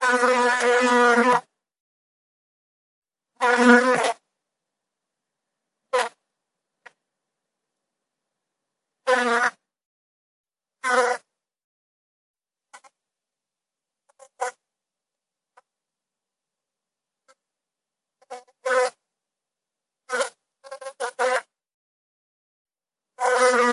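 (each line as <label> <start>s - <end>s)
Constant buzzing of bees flying, swarming, and moving within a beehive, with occasional insect noises and subtle vibrations. 0.0s - 1.4s
Constant buzzing of bees flying, foraging, swarming, and moving within a hive, accompanied by insect activity and subtle vibrations from the swarm. 3.4s - 4.2s
Constant buzzing of bees flying, foraging, swarming, and moving within a hive, accompanied by insect activity and subtle vibrations from the swarm. 5.9s - 6.2s
Constant buzzing of bees flying, foraging, swarming, and moving within a hive, accompanied by insect activity and subtle vibrations from the swarm. 6.8s - 7.0s
Constant buzzing of bees flying, foraging, swarming, and moving within a hive, accompanied by insect activity and subtle vibrations from the swarm. 9.0s - 9.6s
Constant buzzing of bees flying, foraging, swarming, and moving within a hive, accompanied by insect activity and subtle vibrations from the swarm. 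10.8s - 11.2s
Constant buzzing of bees flying, foraging, swarming, and moving within a hive, accompanied by insect activity and subtle vibrations from the swarm. 12.6s - 12.9s
Constant buzzing of bees flying, foraging, swarming, and moving within a hive, accompanied by insect activity and subtle vibrations from the swarm. 14.1s - 14.6s
Constant buzzing of bees flying, foraging, swarming, and moving within a hive, accompanied by insect activity and subtle vibrations from the swarm. 15.5s - 15.7s
Constant buzzing of bees flying, foraging, swarming, and moving within a hive, accompanied by insect activity and subtle vibrations from the swarm. 17.3s - 17.4s
Constant buzzing of bees flying, foraging, swarming, and moving within a hive, accompanied by insect activity and subtle vibrations from the swarm. 18.2s - 19.0s
Constant buzzing of bees flying, foraging, swarming, and moving within a hive, accompanied by insect activity and subtle vibrations from the swarm. 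20.1s - 21.5s
Constant buzzing of bees flying, foraging, swarming, and moving within a hive, accompanied by insect activity and subtle vibrations from the swarm. 23.1s - 23.7s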